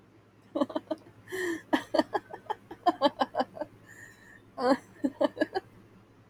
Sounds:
Laughter